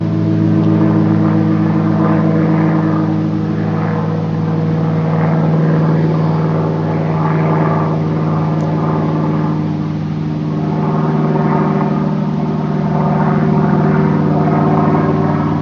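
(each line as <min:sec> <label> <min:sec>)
0:00.0 An airplane flies overhead in the distance. 0:15.6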